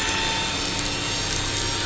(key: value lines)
label: anthrophony, boat engine
recorder: SoundTrap 500